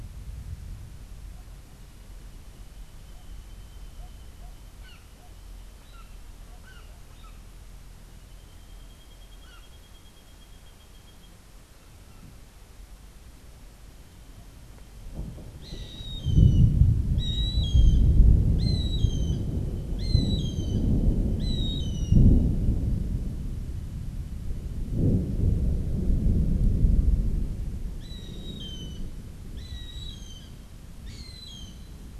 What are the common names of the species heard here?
Brown Jay, Gray Hawk